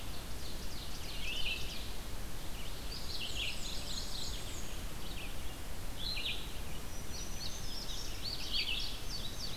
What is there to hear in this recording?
Red-eyed Vireo, Ovenbird, Mourning Warbler, Black-and-white Warbler, Black-throated Green Warbler, Indigo Bunting